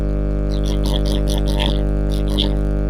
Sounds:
Throat clearing